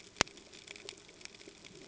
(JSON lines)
{"label": "ambient", "recorder": "HydroMoth"}